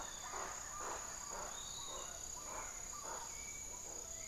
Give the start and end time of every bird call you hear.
0.0s-1.1s: Buff-throated Woodcreeper (Xiphorhynchus guttatus)
0.0s-4.3s: Hauxwell's Thrush (Turdus hauxwelli)
0.0s-4.3s: Piratic Flycatcher (Legatus leucophaius)
0.0s-4.3s: Spix's Guan (Penelope jacquacu)

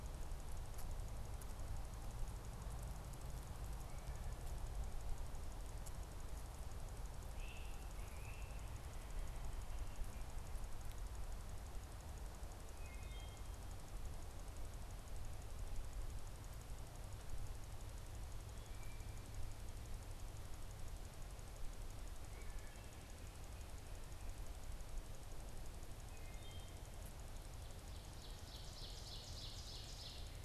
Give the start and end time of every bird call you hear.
7.1s-8.8s: Great Crested Flycatcher (Myiarchus crinitus)
12.7s-13.6s: Wood Thrush (Hylocichla mustelina)
22.2s-23.0s: Wood Thrush (Hylocichla mustelina)
26.0s-26.9s: Wood Thrush (Hylocichla mustelina)
27.6s-30.4s: Ovenbird (Seiurus aurocapilla)

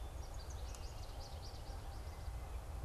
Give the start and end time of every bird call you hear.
0.0s-2.8s: American Goldfinch (Spinus tristis)

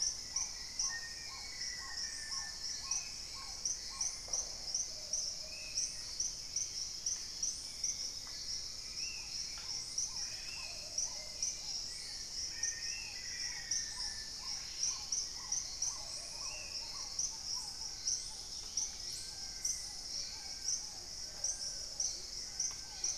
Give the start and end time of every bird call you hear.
0.0s-4.2s: Black-tailed Trogon (Trogon melanurus)
0.0s-23.2s: Hauxwell's Thrush (Turdus hauxwelli)
0.0s-23.2s: Paradise Tanager (Tangara chilensis)
0.8s-2.8s: Black-faced Antthrush (Formicarius analis)
2.8s-17.2s: Spot-winged Antshrike (Pygiptila stellaris)
4.1s-4.6s: Red-necked Woodpecker (Campephilus rubricollis)
4.8s-6.0s: Plumbeous Pigeon (Patagioenas plumbea)
5.6s-14.2s: Dusky-throated Antshrike (Thamnomanes ardesiacus)
8.3s-9.5s: Undulated Tinamou (Crypturellus undulatus)
8.9s-23.2s: Black-tailed Trogon (Trogon melanurus)
9.9s-10.8s: unidentified bird
10.6s-11.6s: Plumbeous Pigeon (Patagioenas plumbea)
12.3s-14.4s: Black-faced Antthrush (Formicarius analis)
14.4s-23.2s: Dusky-capped Greenlet (Pachysylvia hypoxantha)
15.8s-17.0s: Plumbeous Pigeon (Patagioenas plumbea)
17.4s-23.2s: Long-billed Woodcreeper (Nasica longirostris)
17.6s-23.2s: Horned Screamer (Anhima cornuta)
20.8s-23.2s: Amazonian Motmot (Momotus momota)

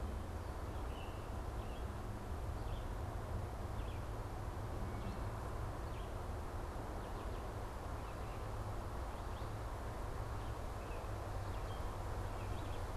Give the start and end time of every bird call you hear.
0.0s-13.0s: Baltimore Oriole (Icterus galbula)

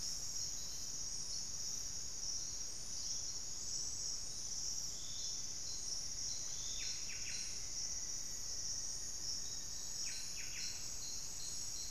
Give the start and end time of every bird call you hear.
5.8s-10.0s: Rufous-fronted Antthrush (Formicarius rufifrons)
6.6s-11.9s: Buff-breasted Wren (Cantorchilus leucotis)

